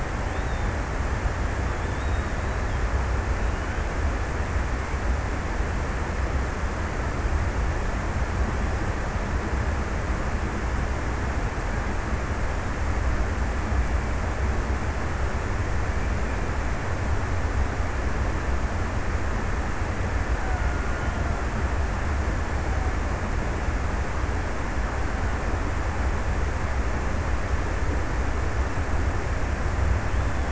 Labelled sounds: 19.9	22.1	killer whale, Bigg's (transient), 0.49 to 1.7 kHz

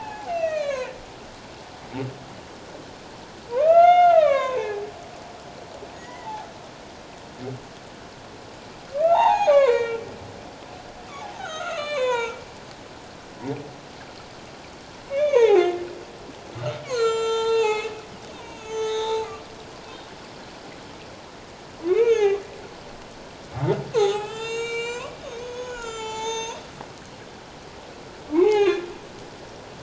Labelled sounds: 3.5	4.8	humpback whale, 0.78 to 6.5 kHz
5.9	6.5	humpback whale, 0.78 to 2.1 kHz
9.0	10.0	humpback whale, 0.78 to 6.8 kHz
11.3	12.4	humpback whale, 0.84 to 6.7 kHz
15.1	15.8	humpback whale, 0.78 to 6.7 kHz
16.8	19.3	humpback whale, 0.78 to 7.3 kHz
21.8	22.4	humpback whale, 0.78 to 6.7 kHz
23.9	26.6	humpback whale, 0.78 to 7.8 kHz
28.3	28.9	humpback whale, 0.78 to 3.8 kHz

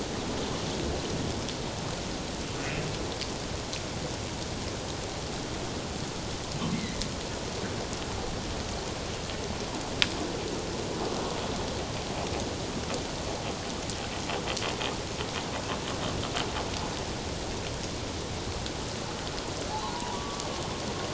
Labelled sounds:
6.7	7.0	humpback whale, 1.8 to 2.2 kHz
19.7	20.4	humpback whale, 0.78 to 1.2 kHz

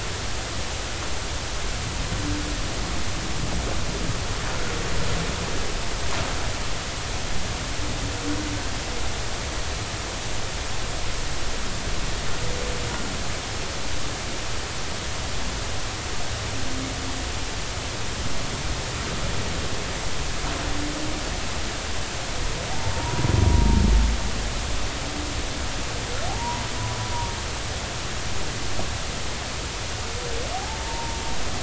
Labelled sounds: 23.0	23.2	humpback whale, 0.90 to 1.0 kHz
26.3	26.6	humpback whale, 0.80 to 1.0 kHz
30.5	31.2	humpback whale, 0.80 to 0.99 kHz

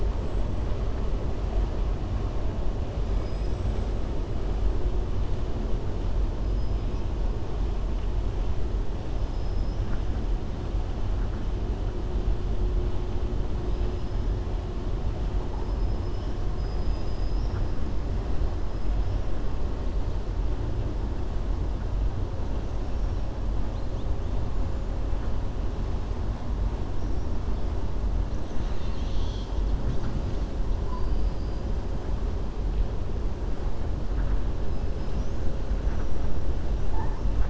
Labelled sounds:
3.1	3.9	killer whale, 4.7 to 8.0 kHz
9.2	9.8	killer whale, 5.1 to 5.9 kHz
16.5	17.6	killer whale, 4.9 to 5.9 kHz

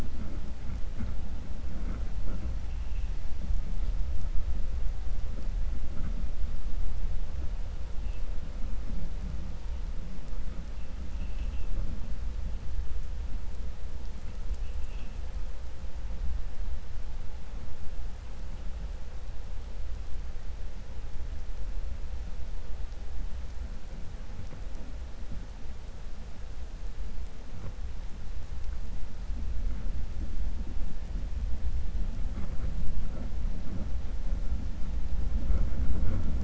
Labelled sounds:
11.1	11.7	vessel noise, 2.0 to 3.4 kHz

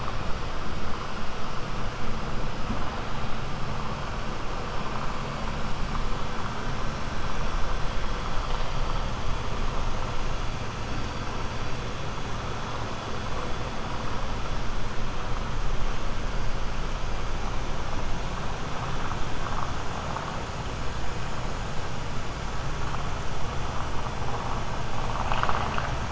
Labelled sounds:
25.0	25.9	vessel noise, 0.47 to 6.4 kHz

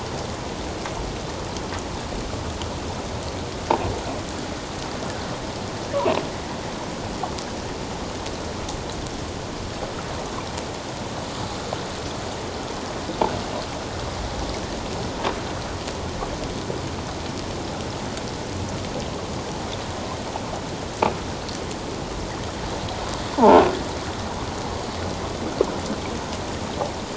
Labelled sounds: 23.3	23.6	croaking sound likely from a nearby submerged object, 0.78 to 1.1 kHz

